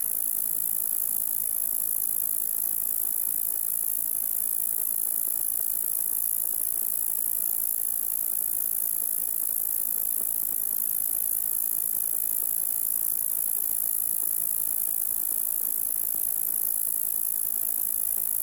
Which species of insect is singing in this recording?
Bradyporus oniscus